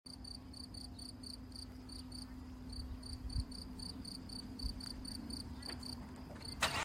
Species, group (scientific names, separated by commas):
Gryllus campestris, Orthoptera